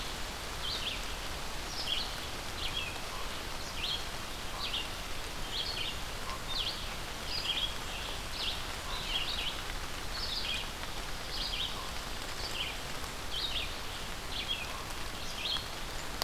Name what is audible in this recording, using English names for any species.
Red-eyed Vireo